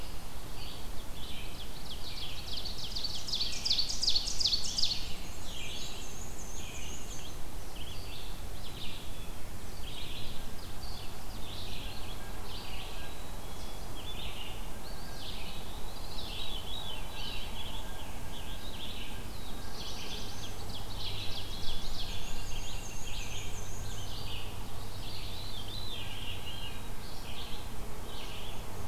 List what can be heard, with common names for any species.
Red-eyed Vireo, Ovenbird, Scarlet Tanager, Black-and-white Warbler, Black-capped Chickadee, Eastern Wood-Pewee, Veery, Black-throated Blue Warbler